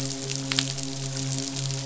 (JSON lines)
{"label": "biophony, midshipman", "recorder": "SoundTrap 500"}